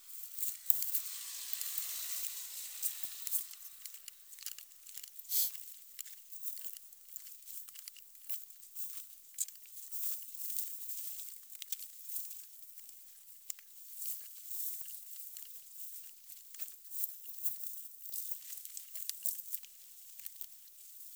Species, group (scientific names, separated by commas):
Poecilimon jonicus, Orthoptera